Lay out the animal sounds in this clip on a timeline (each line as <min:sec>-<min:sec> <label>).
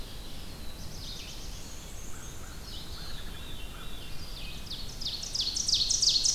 0:00.0-0:06.3 Red-eyed Vireo (Vireo olivaceus)
0:00.3-0:02.0 Black-throated Blue Warbler (Setophaga caerulescens)
0:01.4-0:03.2 Black-and-white Warbler (Mniotilta varia)
0:01.7-0:04.6 American Crow (Corvus brachyrhynchos)
0:02.4-0:04.1 Veery (Catharus fuscescens)
0:04.2-0:06.3 Ovenbird (Seiurus aurocapilla)